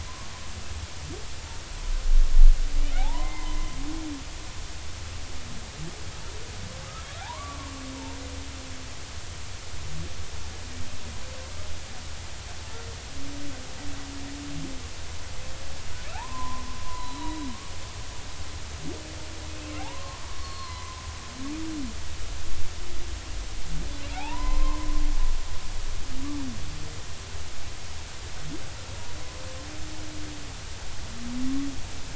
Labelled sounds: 3.0	4.6	humpback whale, 0.80 to 2.2 kHz
6.8	8.2	humpback whale, 0.80 to 1.4 kHz
16.1	17.5	humpback whale, 0.80 to 4.1 kHz
19.8	21.0	humpback whale, 0.80 to 4.4 kHz
24.1	24.9	humpback whale, 0.80 to 2.1 kHz

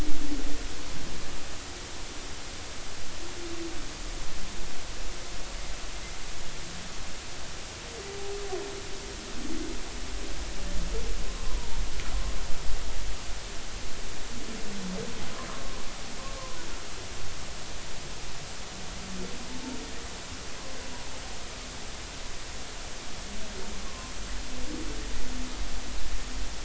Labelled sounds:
23.9	24.1	humpback whale, 0.99 to 1.2 kHz

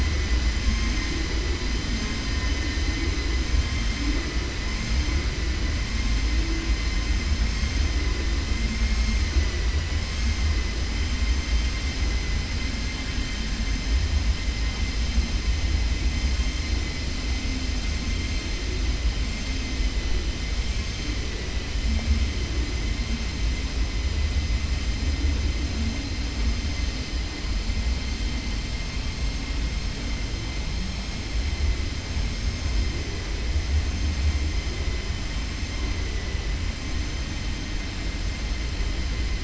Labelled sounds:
9.3	10.0	vessel noise, 0.69 to 3.0 kHz
21.2	21.7	vessel noise, 1.0 to 3.0 kHz

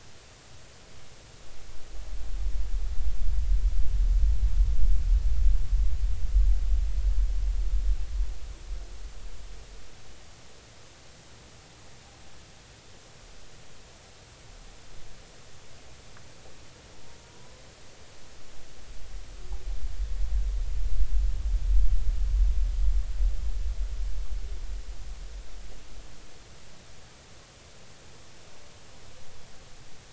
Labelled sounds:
17.2	17.6	humpback whale, 0.90 to 1.1 kHz

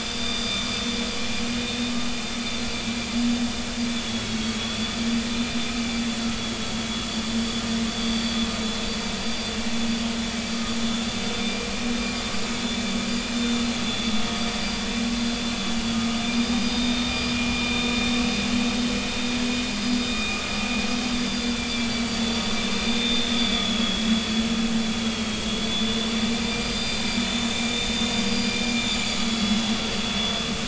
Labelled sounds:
0.2	0.5	vessel noise, 3.4 to 3.7 kHz
4.1	5.1	vessel noise, 3.2 to 4.7 kHz
6.2	6.5	vessel noise, 4.5 to 4.6 kHz
7.9	8.4	vessel noise, 4.6 to 4.7 kHz
8.9	9.5	vessel noise, 4.4 to 4.8 kHz
11.2	11.7	vessel noise, 2.3 to 4.8 kHz
13.3	14.1	vessel noise, 3.3 to 3.6 kHz
15.6	17.1	vessel noise, 3.5 to 4.9 kHz
17.5	17.9	vessel noise, 2.4 to 3.6 kHz
20.1	20.4	vessel noise, 2.4 to 2.5 kHz
21.1	22.2	vessel noise, 3.4 to 4.9 kHz
22.7	24.3	vessel noise, 2.4 to 4.8 kHz
25.1	27.1	vessel noise, 2.3 to 4.8 kHz
28.3	29.6	vessel noise, 3.2 to 7.1 kHz

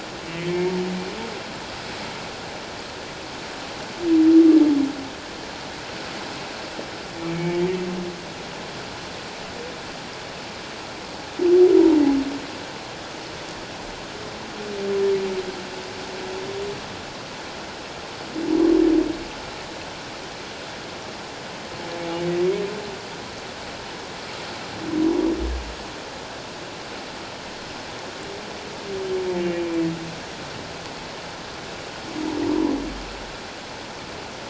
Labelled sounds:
0.2	0.5	humpback whale, 2.3 to 3.0 kHz
7.3	7.6	humpback whale, 2.2 to 2.3 kHz
29.4	29.9	humpback whale, 2.3 to 2.5 kHz

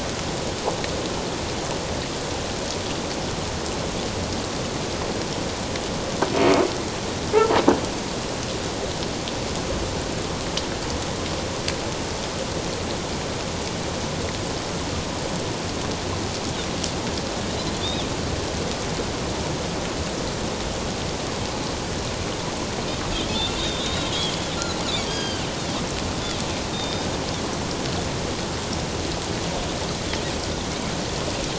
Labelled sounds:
17.8	18.1	Pacific white-sided dolphin, 3.2 to 3.8 kHz
23.1	24.4	Pacific white-sided dolphin, 3.1 to 4.0 kHz
25.1	25.5	Pacific white-sided dolphin, 1.5 to 6.6 kHz
26.7	27.1	Pacific white-sided dolphin, 3.6 to 3.7 kHz

